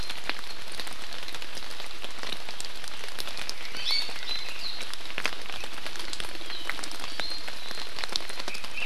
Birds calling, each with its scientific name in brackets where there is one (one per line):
Iiwi (Drepanis coccinea)